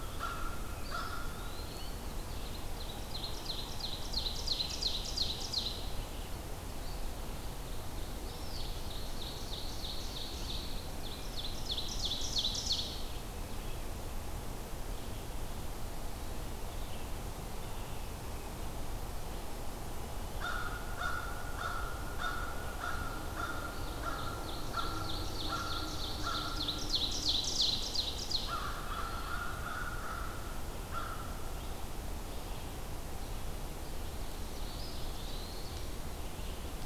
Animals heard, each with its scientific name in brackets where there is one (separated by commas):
Eastern Wood-Pewee (Contopus virens), Ovenbird (Seiurus aurocapilla), American Crow (Corvus brachyrhynchos)